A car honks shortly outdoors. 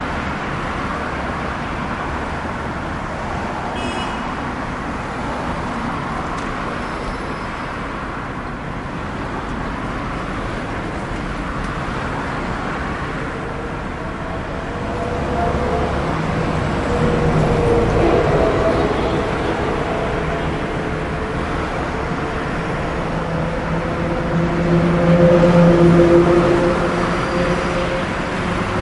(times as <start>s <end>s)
3.5s 4.5s